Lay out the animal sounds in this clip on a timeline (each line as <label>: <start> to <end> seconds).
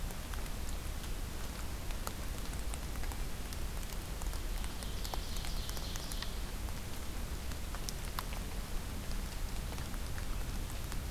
Ovenbird (Seiurus aurocapilla): 4.4 to 6.4 seconds